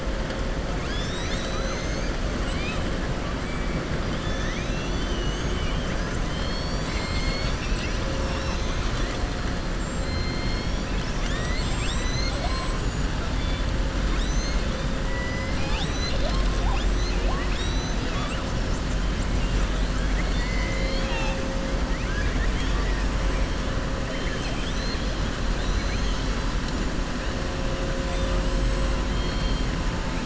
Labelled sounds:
2.3	2.8	killer whale, southern resident, 1.9 to 5.2 kHz
4.1	6.0	killer whale, southern resident, 1.8 to 4.1 kHz
10.0	10.8	killer whale, southern resident, 2.2 to 5.7 kHz
20.0	21.4	killer whale, southern resident, 0.81 to 7.2 kHz
21.9	23.0	killer whale, southern resident, 1.2 to 3.5 kHz
24.2	25.1	killer whale, southern resident, 1.7 to 6.3 kHz

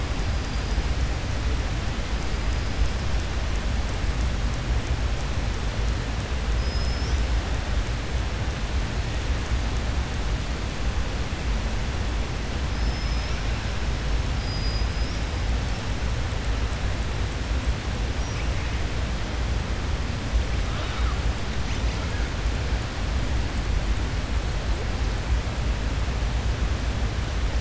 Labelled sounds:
6.5	7.2	killer whale, southern resident, 5.0 to 6.0 kHz
12.7	13.4	killer whale, southern resident, 5.0 to 5.9 kHz
14.4	15.2	killer whale, southern resident, 4.9 to 5.7 kHz

